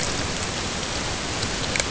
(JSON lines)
{"label": "ambient", "recorder": "HydroMoth"}